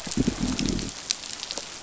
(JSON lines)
{"label": "biophony", "recorder": "SoundTrap 500"}